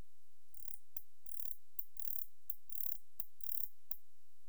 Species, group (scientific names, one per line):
Barbitistes ocskayi
Orthoptera